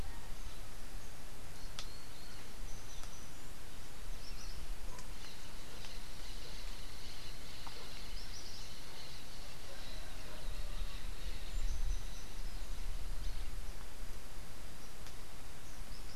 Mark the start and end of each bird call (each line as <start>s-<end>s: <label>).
1.6s-2.1s: Rufous-capped Warbler (Basileuterus rufifrons)
5.1s-12.4s: Orange-fronted Parakeet (Eupsittula canicularis)